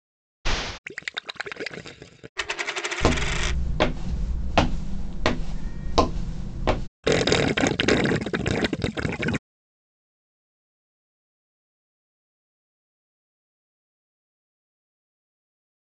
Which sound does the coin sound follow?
gurgling